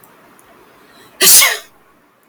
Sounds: Sneeze